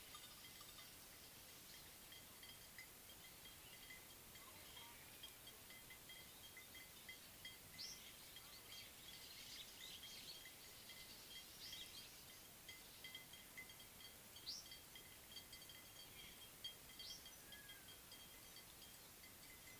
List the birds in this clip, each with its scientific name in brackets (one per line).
Baglafecht Weaver (Ploceus baglafecht)